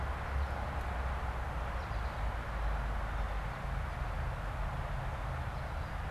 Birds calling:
American Goldfinch (Spinus tristis)

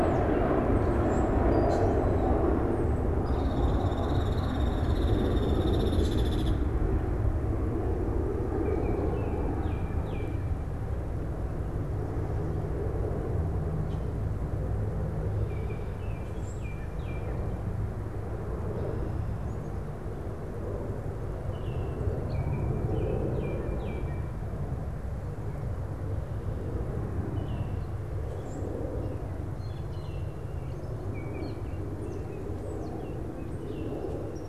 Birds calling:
Common Grackle (Quiscalus quiscula)
Baltimore Oriole (Icterus galbula)
Hairy Woodpecker (Dryobates villosus)

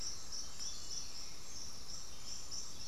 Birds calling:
Black-throated Antbird (Myrmophylax atrothorax)

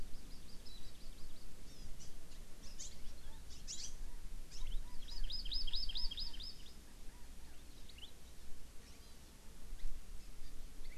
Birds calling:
Hawaii Amakihi (Chlorodrepanis virens)
Chinese Hwamei (Garrulax canorus)
Warbling White-eye (Zosterops japonicus)

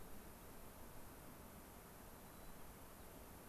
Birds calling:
White-crowned Sparrow (Zonotrichia leucophrys)

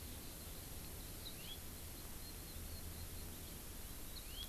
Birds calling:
House Finch (Haemorhous mexicanus)
Eurasian Skylark (Alauda arvensis)

